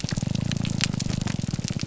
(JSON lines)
{"label": "biophony, grouper groan", "recorder": "SoundTrap 300"}